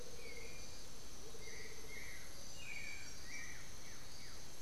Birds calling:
Blue-gray Saltator (Saltator coerulescens), Amazonian Motmot (Momotus momota), Black-billed Thrush (Turdus ignobilis)

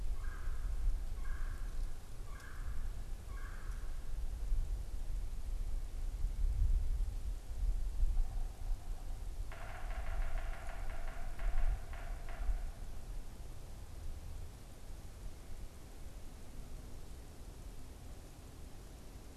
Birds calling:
Yellow-bellied Sapsucker (Sphyrapicus varius), Red-bellied Woodpecker (Melanerpes carolinus)

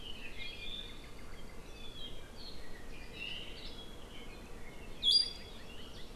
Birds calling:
Apapane (Himatione sanguinea)

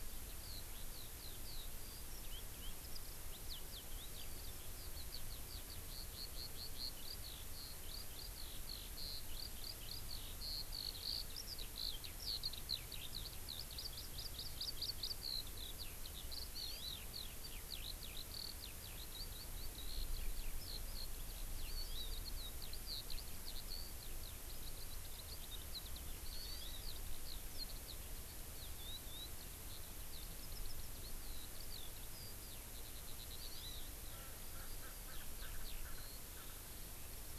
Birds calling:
Erckel's Francolin (Pternistis erckelii), Eurasian Skylark (Alauda arvensis), Hawaii Amakihi (Chlorodrepanis virens)

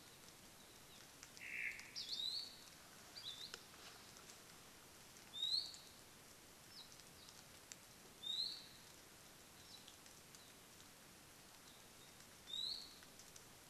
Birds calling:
Omao (Myadestes obscurus), Apapane (Himatione sanguinea), Iiwi (Drepanis coccinea), Hawaii Akepa (Loxops coccineus)

